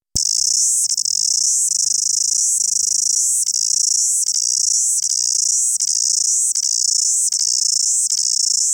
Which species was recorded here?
Amphipsalta zelandica